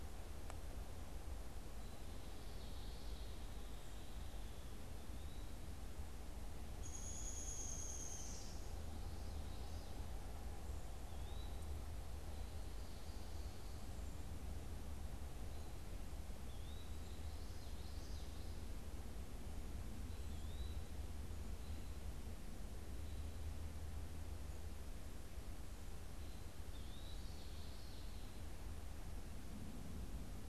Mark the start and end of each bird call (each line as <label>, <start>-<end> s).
Downy Woodpecker (Dryobates pubescens), 6.5-8.6 s
Eastern Wood-Pewee (Contopus virens), 10.7-11.7 s
Eastern Wood-Pewee (Contopus virens), 16.3-17.1 s
Common Yellowthroat (Geothlypis trichas), 16.9-18.7 s
Eastern Wood-Pewee (Contopus virens), 20.1-20.8 s
American Robin (Turdus migratorius), 21.4-23.6 s
Common Yellowthroat (Geothlypis trichas), 26.4-28.2 s
Eastern Wood-Pewee (Contopus virens), 26.5-27.3 s